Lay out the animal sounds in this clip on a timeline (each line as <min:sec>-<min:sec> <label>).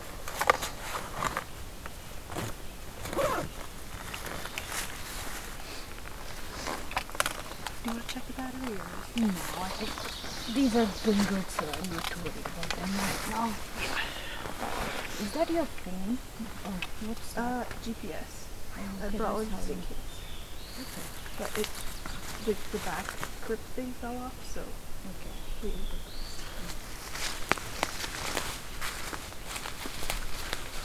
0:09.5-0:11.6 Ovenbird (Seiurus aurocapilla)
0:14.6-0:15.6 Black-throated Blue Warbler (Setophaga caerulescens)
0:19.9-0:21.3 Black-throated Blue Warbler (Setophaga caerulescens)
0:25.2-0:26.6 Black-throated Blue Warbler (Setophaga caerulescens)